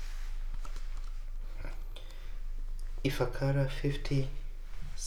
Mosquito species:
Anopheles funestus s.l.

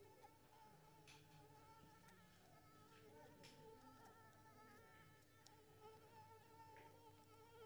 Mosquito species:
Anopheles squamosus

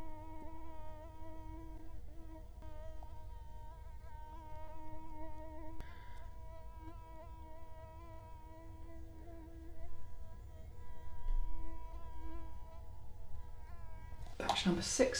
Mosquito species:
Culex quinquefasciatus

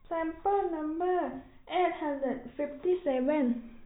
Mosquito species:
no mosquito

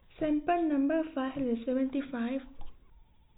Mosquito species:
no mosquito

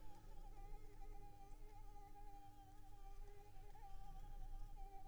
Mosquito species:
Anopheles squamosus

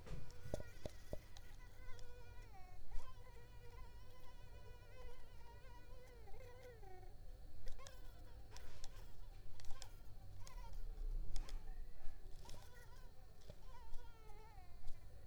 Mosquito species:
Culex pipiens complex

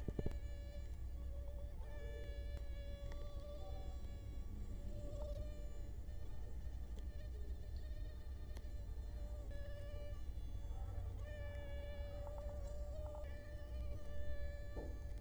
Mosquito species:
Culex quinquefasciatus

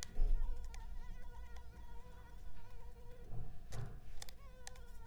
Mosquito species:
Anopheles arabiensis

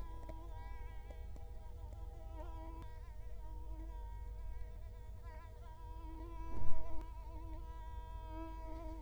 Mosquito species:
Culex quinquefasciatus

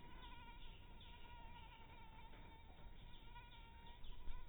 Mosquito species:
mosquito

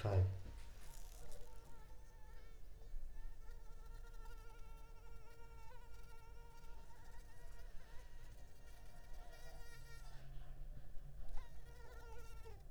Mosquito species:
Culex pipiens complex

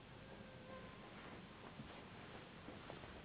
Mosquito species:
Anopheles gambiae s.s.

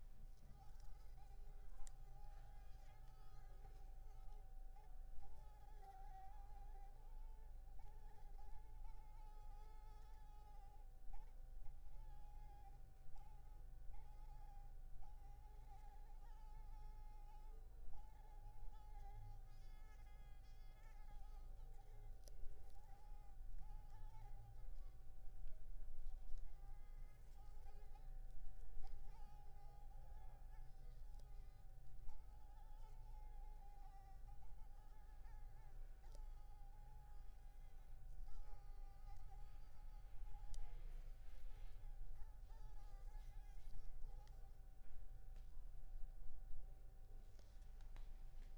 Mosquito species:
Anopheles arabiensis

